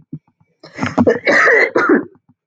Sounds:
Cough